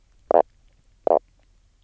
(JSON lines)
{"label": "biophony, knock croak", "recorder": "SoundTrap 300"}